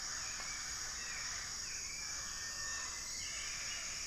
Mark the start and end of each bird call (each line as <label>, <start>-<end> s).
Cinereous Tinamou (Crypturellus cinereus), 0.0-4.1 s
Plumbeous Antbird (Myrmelastes hyperythrus), 2.1-4.1 s